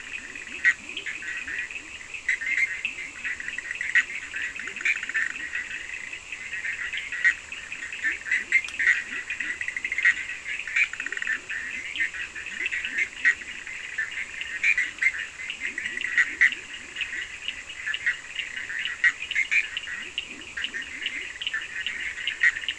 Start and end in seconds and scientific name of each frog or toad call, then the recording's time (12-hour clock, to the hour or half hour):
0.0	17.5	Leptodactylus latrans
0.0	22.7	Boana bischoffi
0.0	22.7	Sphaenorhynchus surdus
19.9	21.4	Leptodactylus latrans
~2am